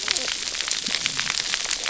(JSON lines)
{"label": "biophony, cascading saw", "recorder": "SoundTrap 300"}